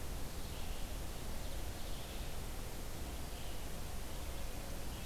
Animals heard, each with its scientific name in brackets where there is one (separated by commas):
Red-eyed Vireo (Vireo olivaceus)